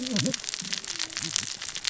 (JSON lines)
{"label": "biophony, cascading saw", "recorder": "SoundTrap 600 or HydroMoth"}